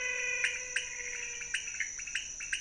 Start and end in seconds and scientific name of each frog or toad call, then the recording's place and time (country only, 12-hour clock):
0.0	1.7	Physalaemus albonotatus
0.0	2.6	Leptodactylus podicipinus
Brazil, 4:00am